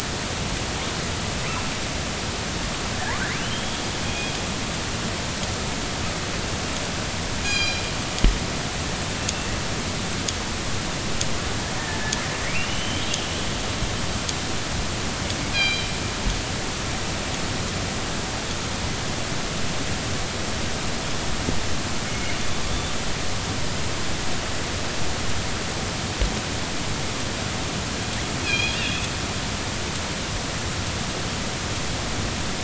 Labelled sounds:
3.3	3.9	killer whale, northern resident, R clan, call N32i, 2.6 to 3.5 kHz
7.4	7.8	killer whale, northern resident, G clan, call N24ii, 1.6 to 7.5 kHz
12.5	13.1	killer whale, northern resident, R clan, call N32i, 2.1 to 3.2 kHz
15.5	15.9	killer whale, northern resident, G clan, call N24ii, 2.3 to 4.9 kHz
22.1	22.4	killer whale, northern resident, G clan, call N24i, 2.1 to 2.3 kHz
28.4	29.1	killer whale, northern resident, G clan, call N24ii, 2.3 to 5.2 kHz

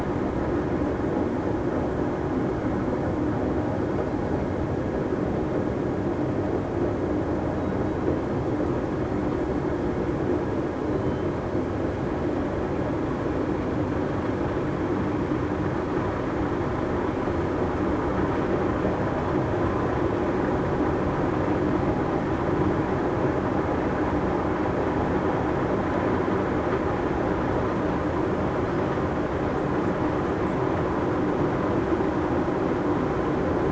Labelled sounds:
10.9	11.3	killer whale, southern resident, 3.0 to 3.1 kHz

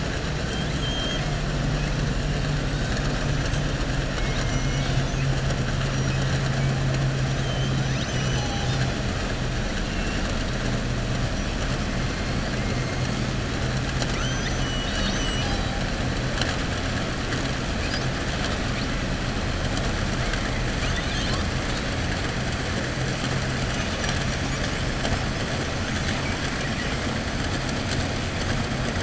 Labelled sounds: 0.4	1.3	killer whale, southern resident, 1.4 to 4.3 kHz

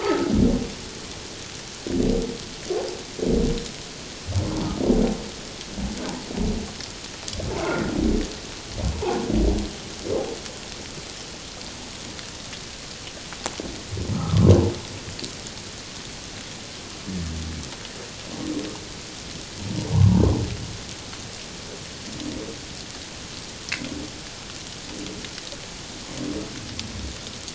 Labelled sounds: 0.0	0.3	humpback whale, 1.2 to 1.6 kHz
7.6	8.0	humpback whale, 1.3 to 1.5 kHz
14.1	14.5	humpback whale, 1.0 to 1.4 kHz
19.9	20.2	humpback whale, 0.84 to 1.1 kHz

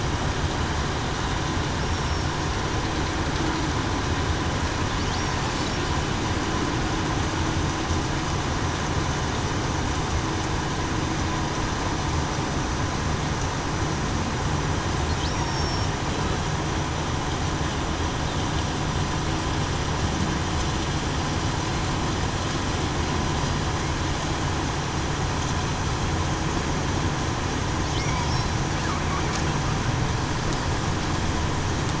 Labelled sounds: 1.9	2.3	killer whale, southern resident, 5.5 to 5.6 kHz
15.3	15.9	killer whale, southern resident, 5.4 to 5.7 kHz

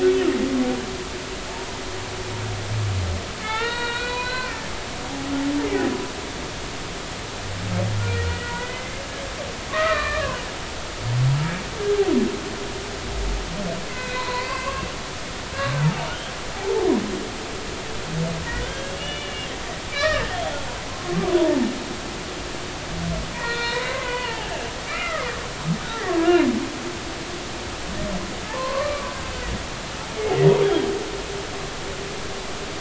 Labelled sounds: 3.4	4.6	humpback whale, 0.80 to 4.5 kHz
5.6	5.9	humpback whale, 1.7 to 2.2 kHz
8.0	8.9	humpback whale, 1.3 to 2.1 kHz
9.7	10.4	humpback whale, 0.96 to 2.5 kHz
11.8	12.1	humpback whale, 1.5 to 1.7 kHz
13.9	14.9	humpback whale, 0.93 to 4.3 kHz
16.5	16.9	humpback whale, 0.80 to 0.93 kHz
18.5	19.5	humpback whale, 1.4 to 3.6 kHz
19.9	21.6	humpback whale, 0.83 to 3.4 kHz
23.3	25.3	humpback whale, 0.80 to 4.3 kHz
26.2	26.4	humpback whale, 1.6 to 1.8 kHz
28.5	29.1	humpback whale, 0.83 to 1.3 kHz
30.6	30.9	humpback whale, 3.1 to 3.4 kHz

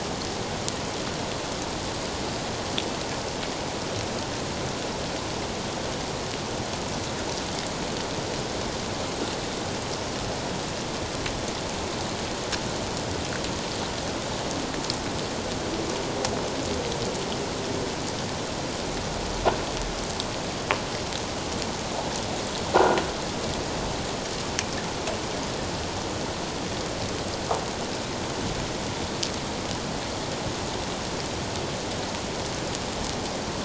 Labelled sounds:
22.8	23.0	croaking sound likely from a nearby submerged object, 1.3 to 1.5 kHz

